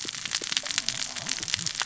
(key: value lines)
label: biophony, cascading saw
recorder: SoundTrap 600 or HydroMoth